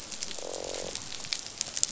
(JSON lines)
{"label": "biophony, croak", "recorder": "SoundTrap 500"}